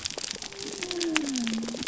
{"label": "biophony", "recorder": "SoundTrap 300"}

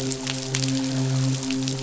{"label": "biophony, midshipman", "recorder": "SoundTrap 500"}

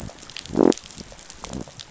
{"label": "biophony", "recorder": "SoundTrap 500"}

